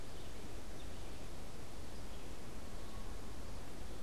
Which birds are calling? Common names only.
Red-eyed Vireo